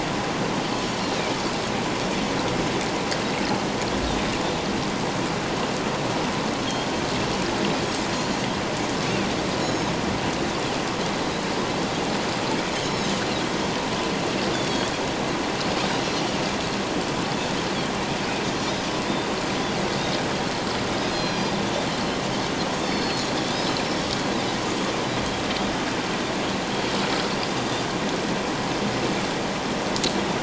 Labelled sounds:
7.8	8.1	Pacific white-sided dolphin, 6.3 to 6.8 kHz
9.6	9.9	Pacific white-sided dolphin, 3.7 to 6.8 kHz
12.8	13.2	Pacific white-sided dolphin, 3.8 to 5.4 kHz
14.5	14.9	Pacific white-sided dolphin, 3.2 to 3.6 kHz
21.1	21.5	Pacific white-sided dolphin, 2.4 to 6.8 kHz
21.9	23.8	Pacific white-sided dolphin, 2.9 to 5.4 kHz
27.6	27.8	Pacific white-sided dolphin, 3.5 to 3.7 kHz

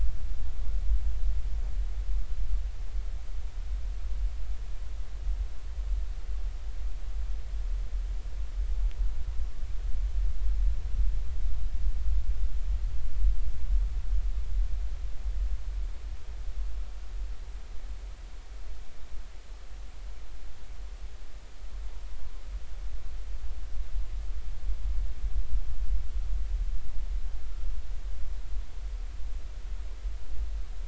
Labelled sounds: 27.4	27.7	humpback whale, 1.3 to 1.4 kHz

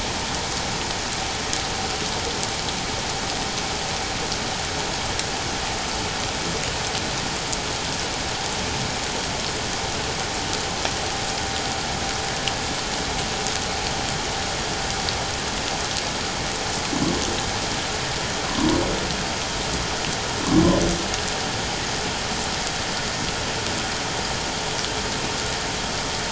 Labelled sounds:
18.4	18.7	humpback whale, 0.94 to 1.2 kHz

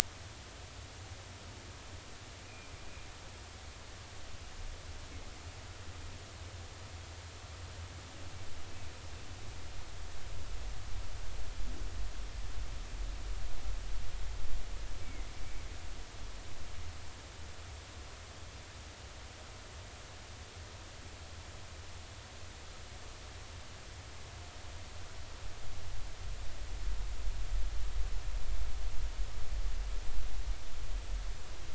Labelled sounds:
2.5	2.7	humpback whale, 2.3 to 2.6 kHz
15.0	15.7	humpback whale, 2.0 to 2.3 kHz

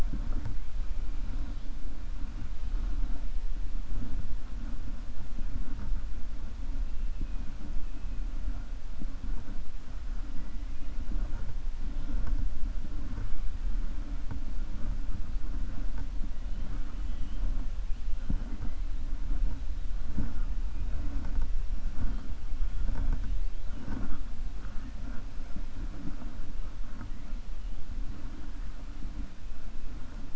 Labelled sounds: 16.5	17.4	killer whale, 1.2 to 3.4 kHz

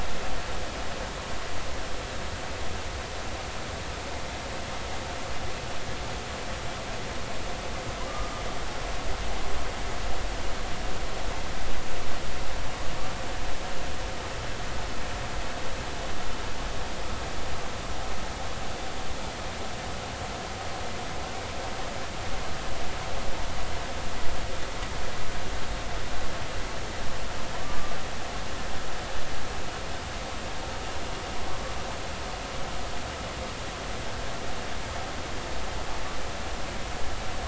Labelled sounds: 8.1	8.4	humpback whale, 1.2 to 1.3 kHz
27.6	28.0	humpback whale, 1.1 to 1.2 kHz

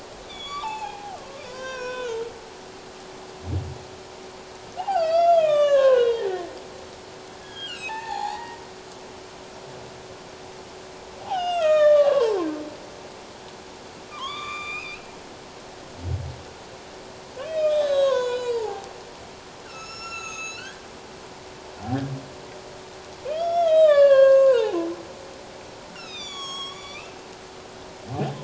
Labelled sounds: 0.3	2.2	humpback whale, 0.78 to 7.0 kHz
4.9	6.4	humpback whale, 0.81 to 7.0 kHz
7.4	8.6	humpback whale, 0.78 to 7.0 kHz
11.2	12.4	humpback whale, 0.78 to 7.4 kHz
14.1	15.1	humpback whale, 0.94 to 7.4 kHz
17.4	18.9	humpback whale, 0.78 to 7.0 kHz
19.6	20.8	humpback whale, 1.2 to 6.9 kHz
23.3	24.8	humpback whale, 0.78 to 6.5 kHz
25.9	27.2	humpback whale, 1.0 to 7.8 kHz

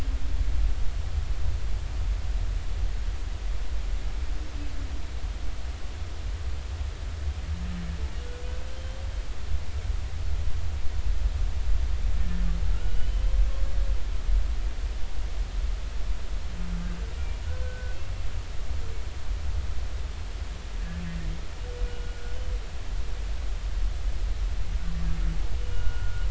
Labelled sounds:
12.2	12.4	humpback whale, 1.7 to 1.9 kHz
12.8	13.4	humpback whale, 2.7 to 3.2 kHz
17.2	18.0	humpback whale, 1.4 to 2.4 kHz
21.8	22.3	humpback whale, 1.4 to 1.6 kHz
25.7	26.2	humpback whale, 1.3 to 1.5 kHz

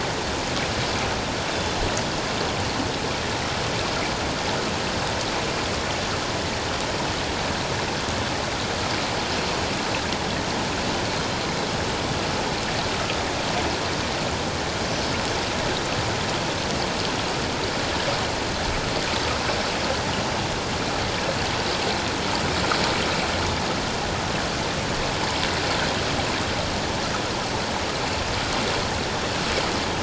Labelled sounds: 1.5	1.8	Pacific white-sided dolphin, 3.4 to 3.7 kHz
14.9	15.2	Pacific white-sided dolphin, 5.1 to 5.3 kHz

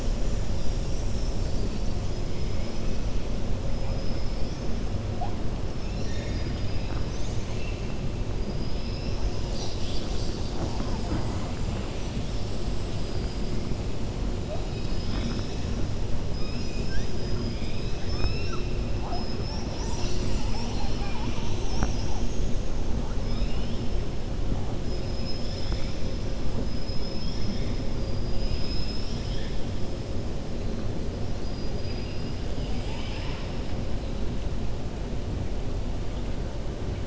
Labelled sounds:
3.8	4.7	killer whale, 4.5 to 6.5 kHz
5.7	7.9	killer whale, 1.2 to 8.0 kHz
17.1	18.7	killer whale, 1.1 to 5.8 kHz
23.2	23.8	killer whale, 2.4 to 3.8 kHz
32.5	33.6	killer whale, 0.89 to 8.0 kHz

